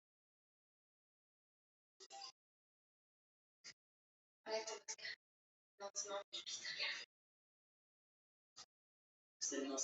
{"expert_labels": [{"quality": "no cough present", "dyspnea": false, "wheezing": false, "stridor": false, "choking": false, "congestion": false, "nothing": false}], "age": 44, "gender": "female", "respiratory_condition": true, "fever_muscle_pain": false, "status": "healthy"}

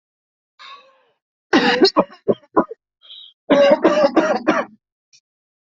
{"expert_labels": [{"quality": "ok", "cough_type": "dry", "dyspnea": false, "wheezing": false, "stridor": false, "choking": false, "congestion": false, "nothing": true, "diagnosis": "COVID-19", "severity": "severe"}], "age": 24, "gender": "male", "respiratory_condition": true, "fever_muscle_pain": false, "status": "symptomatic"}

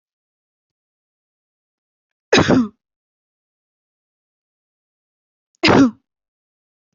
{"expert_labels": [{"quality": "good", "cough_type": "wet", "dyspnea": false, "wheezing": false, "stridor": false, "choking": false, "congestion": false, "nothing": true, "diagnosis": "healthy cough", "severity": "pseudocough/healthy cough"}], "age": 22, "gender": "female", "respiratory_condition": false, "fever_muscle_pain": false, "status": "healthy"}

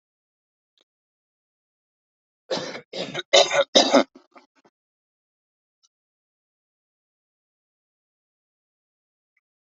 {"expert_labels": [{"quality": "poor", "cough_type": "unknown", "dyspnea": false, "wheezing": false, "stridor": false, "choking": false, "congestion": false, "nothing": true, "diagnosis": "healthy cough", "severity": "pseudocough/healthy cough"}, {"quality": "good", "cough_type": "wet", "dyspnea": false, "wheezing": false, "stridor": false, "choking": false, "congestion": false, "nothing": true, "diagnosis": "lower respiratory tract infection", "severity": "mild"}, {"quality": "good", "cough_type": "dry", "dyspnea": false, "wheezing": false, "stridor": false, "choking": false, "congestion": false, "nothing": true, "diagnosis": "upper respiratory tract infection", "severity": "mild"}, {"quality": "ok", "cough_type": "dry", "dyspnea": false, "wheezing": false, "stridor": false, "choking": false, "congestion": false, "nothing": true, "diagnosis": "upper respiratory tract infection", "severity": "mild"}], "age": 28, "gender": "male", "respiratory_condition": true, "fever_muscle_pain": true, "status": "COVID-19"}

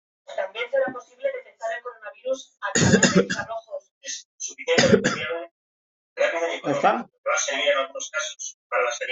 {"expert_labels": [{"quality": "poor", "cough_type": "dry", "dyspnea": false, "wheezing": false, "stridor": false, "choking": false, "congestion": false, "nothing": true, "diagnosis": "upper respiratory tract infection", "severity": "unknown"}]}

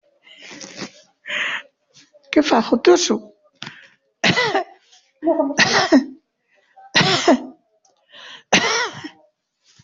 {"expert_labels": [{"quality": "ok", "cough_type": "unknown", "dyspnea": false, "wheezing": false, "stridor": true, "choking": false, "congestion": false, "nothing": false, "diagnosis": "obstructive lung disease", "severity": "mild"}], "age": 81, "gender": "female", "respiratory_condition": false, "fever_muscle_pain": false, "status": "COVID-19"}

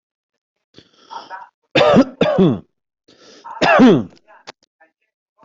{"expert_labels": [{"quality": "good", "cough_type": "dry", "dyspnea": false, "wheezing": false, "stridor": false, "choking": false, "congestion": false, "nothing": true, "diagnosis": "healthy cough", "severity": "pseudocough/healthy cough"}], "age": 42, "gender": "male", "respiratory_condition": false, "fever_muscle_pain": false, "status": "healthy"}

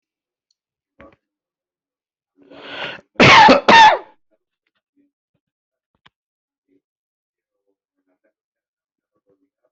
{"expert_labels": [{"quality": "ok", "cough_type": "dry", "dyspnea": false, "wheezing": false, "stridor": false, "choking": false, "congestion": false, "nothing": true, "diagnosis": "COVID-19", "severity": "mild"}], "gender": "female", "respiratory_condition": false, "fever_muscle_pain": false, "status": "COVID-19"}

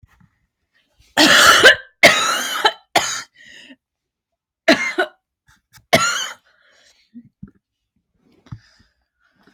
{"expert_labels": [{"quality": "good", "cough_type": "dry", "dyspnea": false, "wheezing": false, "stridor": false, "choking": false, "congestion": false, "nothing": true, "diagnosis": "obstructive lung disease", "severity": "mild"}], "age": 26, "gender": "female", "respiratory_condition": false, "fever_muscle_pain": false, "status": "healthy"}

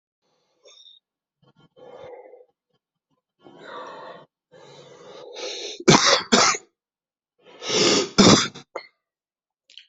{"expert_labels": [{"quality": "good", "cough_type": "wet", "dyspnea": false, "wheezing": false, "stridor": false, "choking": false, "congestion": true, "nothing": false, "diagnosis": "lower respiratory tract infection", "severity": "mild"}], "age": 48, "gender": "male", "respiratory_condition": false, "fever_muscle_pain": false, "status": "COVID-19"}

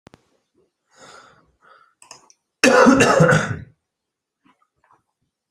{"expert_labels": [{"quality": "good", "cough_type": "dry", "dyspnea": false, "wheezing": false, "stridor": false, "choking": false, "congestion": false, "nothing": true, "diagnosis": "upper respiratory tract infection", "severity": "mild"}], "age": 32, "gender": "male", "respiratory_condition": false, "fever_muscle_pain": false, "status": "COVID-19"}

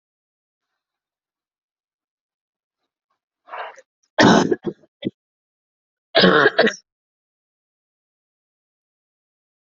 {"expert_labels": [{"quality": "good", "cough_type": "dry", "dyspnea": false, "wheezing": false, "stridor": false, "choking": false, "congestion": false, "nothing": true, "diagnosis": "COVID-19", "severity": "mild"}], "age": 35, "gender": "female", "respiratory_condition": false, "fever_muscle_pain": false, "status": "symptomatic"}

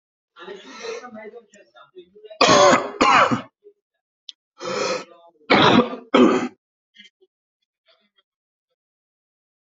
{"expert_labels": [{"quality": "ok", "cough_type": "wet", "dyspnea": false, "wheezing": false, "stridor": false, "choking": false, "congestion": false, "nothing": true, "diagnosis": "obstructive lung disease", "severity": "mild"}], "age": 37, "gender": "female", "respiratory_condition": true, "fever_muscle_pain": false, "status": "healthy"}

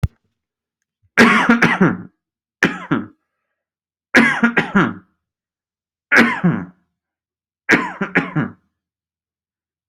{"expert_labels": [{"quality": "good", "cough_type": "dry", "dyspnea": false, "wheezing": false, "stridor": false, "choking": false, "congestion": false, "nothing": true, "diagnosis": "upper respiratory tract infection", "severity": "mild"}], "gender": "male", "respiratory_condition": false, "fever_muscle_pain": false, "status": "symptomatic"}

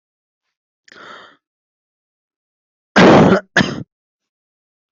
{"expert_labels": [{"quality": "good", "cough_type": "dry", "dyspnea": false, "wheezing": false, "stridor": false, "choking": false, "congestion": false, "nothing": true, "diagnosis": "upper respiratory tract infection", "severity": "mild"}], "age": 22, "gender": "female", "respiratory_condition": false, "fever_muscle_pain": false, "status": "healthy"}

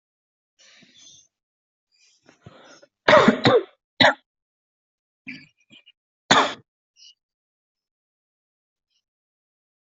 {"expert_labels": [{"quality": "ok", "cough_type": "dry", "dyspnea": false, "wheezing": false, "stridor": false, "choking": false, "congestion": false, "nothing": true, "diagnosis": "COVID-19", "severity": "mild"}], "age": 35, "gender": "male", "respiratory_condition": false, "fever_muscle_pain": false, "status": "healthy"}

